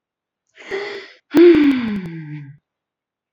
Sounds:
Sigh